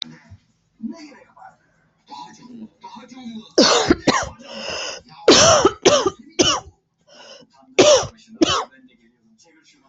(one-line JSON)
{"expert_labels": [{"quality": "ok", "cough_type": "dry", "dyspnea": false, "wheezing": false, "stridor": false, "choking": false, "congestion": false, "nothing": true, "diagnosis": "COVID-19", "severity": "mild"}], "age": 37, "gender": "female", "respiratory_condition": false, "fever_muscle_pain": true, "status": "symptomatic"}